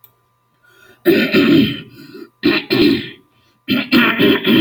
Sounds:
Throat clearing